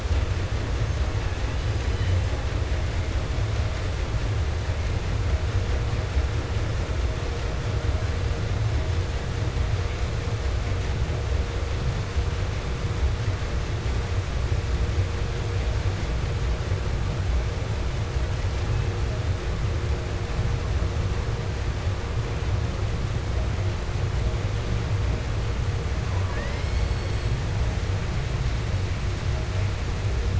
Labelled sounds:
0.8	2.4	killer whale, 0.98 to 6.5 kHz
18.6	19.3	killer whale, 0.36 to 3.5 kHz
26.0	27.7	killer whale, southern resident, J pod, call S42, 0.50 to 8.0 kHz

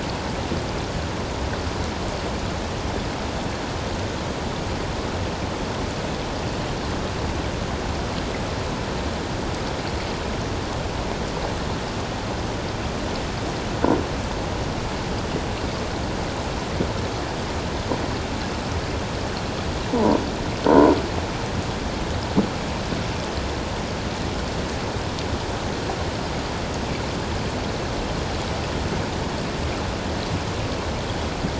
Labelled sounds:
19.9	20.2	croaking sound likely from a nearby submerged object, 0.84 to 1.1 kHz
20.7	20.9	croaking sound likely from a nearby submerged object, 0.88 to 1.1 kHz

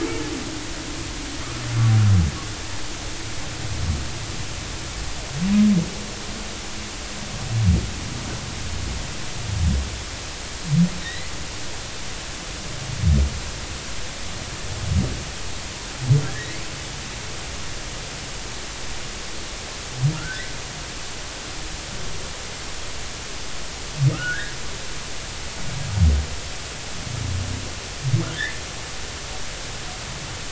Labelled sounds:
11.0	11.3	humpback whale, 1.8 to 4.1 kHz
16.2	16.6	humpback whale, 1.5 to 2.0 kHz
20.2	20.5	humpback whale, 1.2 to 2.0 kHz
24.1	24.5	humpback whale, 1.2 to 2.0 kHz
28.3	28.6	humpback whale, 1.5 to 2.1 kHz

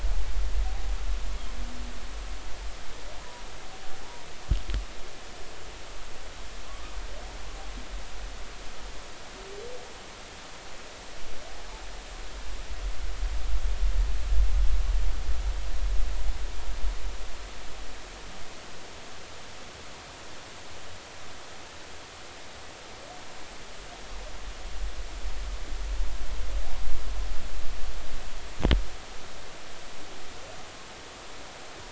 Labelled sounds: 6.6	6.9	humpback whale, 0.99 to 1.3 kHz

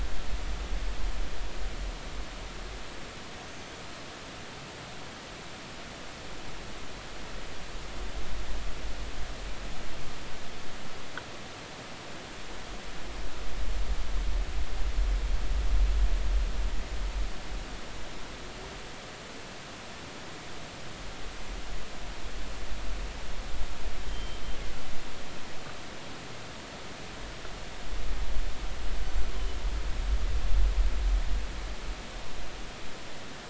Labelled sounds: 3.4	3.7	killer whale, northern resident, 6.2 to 6.4 kHz
24.1	24.4	killer whale, northern resident, G clan, GG subclan, call N23ii, 3.1 to 3.3 kHz

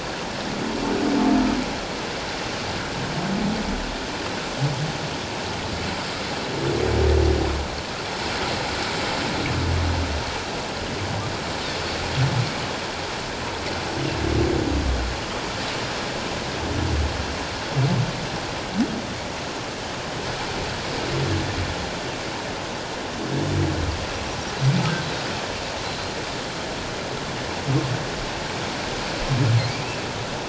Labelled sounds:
25.8	26.2	humpback whale, 4.0 to 4.3 kHz

